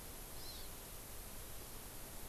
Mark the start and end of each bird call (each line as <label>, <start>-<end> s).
Hawaii Amakihi (Chlorodrepanis virens), 0.4-0.7 s